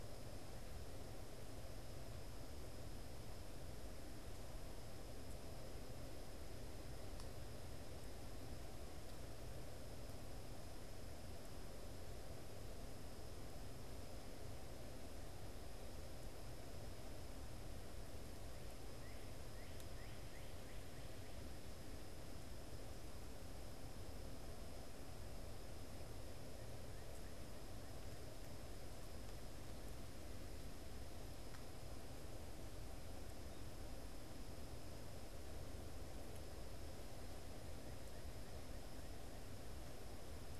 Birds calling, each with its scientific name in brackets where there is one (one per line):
Northern Cardinal (Cardinalis cardinalis)